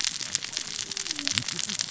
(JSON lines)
{"label": "biophony, cascading saw", "recorder": "SoundTrap 600 or HydroMoth"}